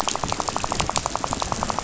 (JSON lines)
{"label": "biophony, rattle", "recorder": "SoundTrap 500"}